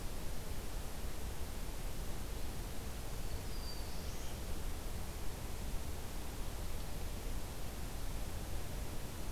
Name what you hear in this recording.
Black-throated Blue Warbler